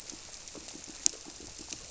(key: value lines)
label: biophony, squirrelfish (Holocentrus)
recorder: SoundTrap 300